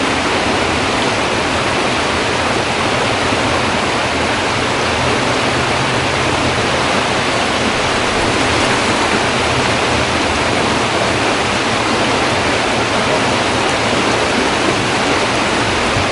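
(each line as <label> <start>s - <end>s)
Loud, constant water flowing nearby. 0.0s - 16.1s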